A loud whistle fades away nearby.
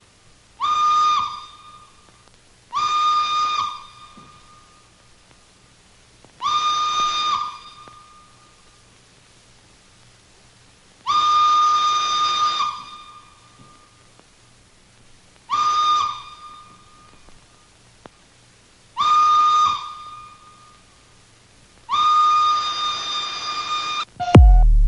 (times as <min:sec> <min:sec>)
0:00.6 0:01.8, 0:02.7 0:04.0, 0:06.4 0:07.9, 0:11.0 0:13.4, 0:15.4 0:16.4, 0:19.0 0:20.2, 0:21.9 0:24.9